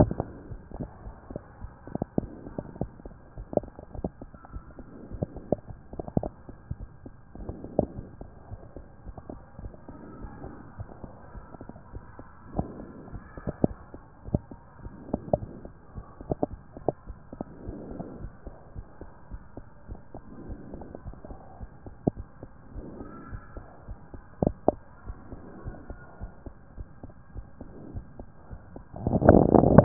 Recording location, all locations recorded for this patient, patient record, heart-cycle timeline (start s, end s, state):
aortic valve (AV)
aortic valve (AV)+pulmonary valve (PV)+tricuspid valve (TV)+mitral valve (MV)
#Age: Child
#Sex: Male
#Height: 104.0 cm
#Weight: 23.0 kg
#Pregnancy status: False
#Murmur: Absent
#Murmur locations: nan
#Most audible location: nan
#Systolic murmur timing: nan
#Systolic murmur shape: nan
#Systolic murmur grading: nan
#Systolic murmur pitch: nan
#Systolic murmur quality: nan
#Diastolic murmur timing: nan
#Diastolic murmur shape: nan
#Diastolic murmur grading: nan
#Diastolic murmur pitch: nan
#Diastolic murmur quality: nan
#Outcome: Abnormal
#Campaign: 2014 screening campaign
0.00	18.02	unannotated
18.02	18.14	diastole
18.14	18.30	S1
18.30	18.42	systole
18.42	18.52	S2
18.52	18.78	diastole
18.78	18.88	S1
18.88	19.00	systole
19.00	19.08	S2
19.08	19.32	diastole
19.32	19.44	S1
19.44	19.56	systole
19.56	19.64	S2
19.64	19.88	diastole
19.88	20.00	S1
20.00	20.12	systole
20.12	20.22	S2
20.22	20.46	diastole
20.46	20.60	S1
20.60	20.68	systole
20.68	20.78	S2
20.78	21.04	diastole
21.04	21.18	S1
21.18	21.30	systole
21.30	21.40	S2
21.40	21.62	diastole
21.62	21.72	S1
21.72	21.84	systole
21.84	21.96	S2
21.96	22.18	diastole
22.18	22.28	S1
22.28	22.40	systole
22.40	22.50	S2
22.50	22.74	diastole
22.74	22.86	S1
22.86	22.94	systole
22.94	23.06	S2
23.06	23.32	diastole
23.32	23.44	S1
23.44	23.52	systole
23.52	23.62	S2
23.62	23.86	diastole
23.86	24.00	S1
24.00	24.10	systole
24.10	24.20	S2
24.20	24.42	diastole
24.42	24.56	S1
24.56	24.64	systole
24.64	24.78	S2
24.78	25.06	diastole
25.06	25.18	S1
25.18	25.30	systole
25.30	25.40	S2
25.40	25.64	diastole
25.64	25.76	S1
25.76	25.86	systole
25.86	26.00	S2
26.00	26.22	diastole
26.22	26.32	S1
26.32	26.42	systole
26.42	26.52	S2
26.52	26.78	diastole
26.78	26.90	S1
26.90	27.02	systole
27.02	27.10	S2
27.10	27.34	diastole
27.34	27.48	S1
27.48	27.60	systole
27.60	27.70	S2
27.70	27.94	diastole
27.94	28.06	S1
28.06	29.84	unannotated